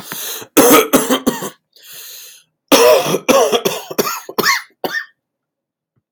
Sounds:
Cough